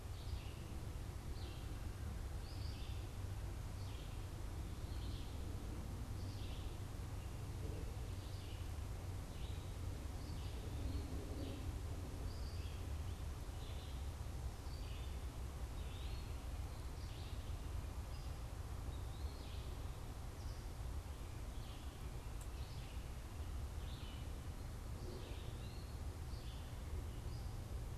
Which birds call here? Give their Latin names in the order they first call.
Vireo olivaceus, Contopus virens